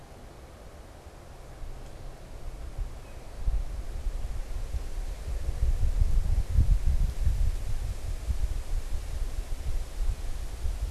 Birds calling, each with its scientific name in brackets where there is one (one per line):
unidentified bird